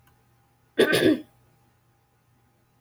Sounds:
Throat clearing